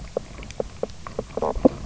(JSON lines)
{"label": "biophony, knock croak", "recorder": "SoundTrap 300"}